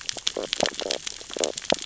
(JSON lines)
{"label": "biophony, stridulation", "recorder": "SoundTrap 600 or HydroMoth"}